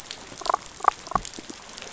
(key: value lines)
label: biophony, damselfish
recorder: SoundTrap 500